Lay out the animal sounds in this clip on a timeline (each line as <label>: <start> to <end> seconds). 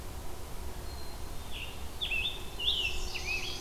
Black-capped Chickadee (Poecile atricapillus): 0.8 to 1.8 seconds
Scarlet Tanager (Piranga olivacea): 1.4 to 3.6 seconds
Chestnut-sided Warbler (Setophaga pensylvanica): 2.6 to 3.6 seconds